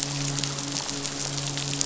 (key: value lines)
label: biophony, midshipman
recorder: SoundTrap 500